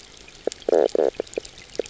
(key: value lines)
label: biophony, knock croak
recorder: SoundTrap 300